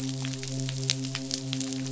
{"label": "biophony, midshipman", "recorder": "SoundTrap 500"}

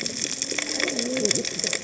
{"label": "biophony, cascading saw", "recorder": "HydroMoth"}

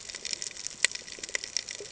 {"label": "ambient", "recorder": "HydroMoth"}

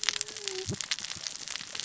{"label": "biophony, cascading saw", "recorder": "SoundTrap 600 or HydroMoth"}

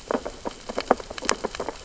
{"label": "biophony, sea urchins (Echinidae)", "recorder": "SoundTrap 600 or HydroMoth"}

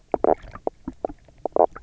{"label": "biophony, knock croak", "recorder": "SoundTrap 300"}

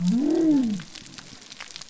{"label": "biophony", "recorder": "SoundTrap 300"}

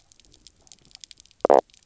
{"label": "biophony, knock croak", "recorder": "SoundTrap 300"}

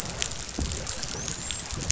{"label": "biophony, dolphin", "recorder": "SoundTrap 500"}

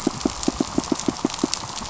{"label": "biophony, pulse", "recorder": "SoundTrap 500"}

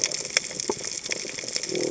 {"label": "biophony", "recorder": "HydroMoth"}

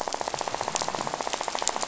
{"label": "biophony, rattle", "recorder": "SoundTrap 500"}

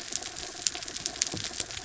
{"label": "anthrophony, mechanical", "recorder": "SoundTrap 300"}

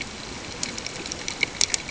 {"label": "ambient", "recorder": "HydroMoth"}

